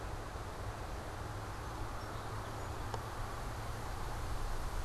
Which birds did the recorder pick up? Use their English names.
Song Sparrow